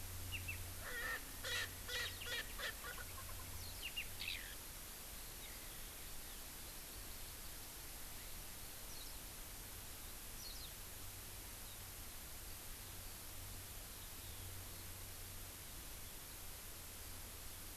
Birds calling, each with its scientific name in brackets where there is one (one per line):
Warbling White-eye (Zosterops japonicus)
Erckel's Francolin (Pternistis erckelii)
Eurasian Skylark (Alauda arvensis)